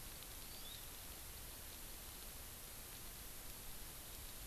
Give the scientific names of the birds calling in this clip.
Chlorodrepanis virens